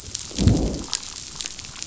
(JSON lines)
{"label": "biophony, growl", "recorder": "SoundTrap 500"}